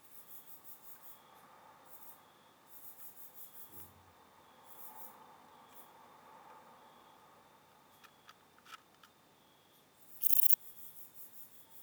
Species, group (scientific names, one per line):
Antaxius difformis
Orthoptera